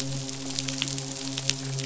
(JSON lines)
{"label": "biophony, midshipman", "recorder": "SoundTrap 500"}